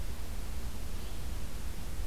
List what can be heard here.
Yellow-bellied Flycatcher